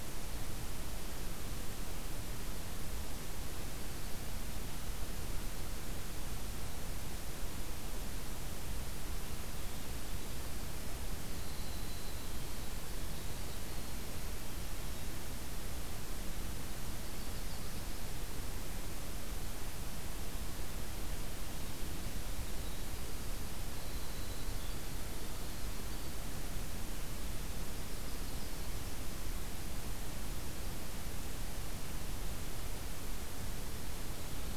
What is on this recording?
Winter Wren